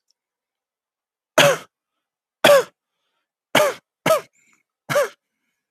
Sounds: Cough